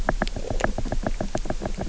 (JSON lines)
{"label": "biophony, knock", "recorder": "SoundTrap 300"}